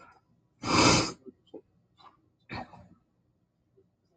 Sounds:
Sniff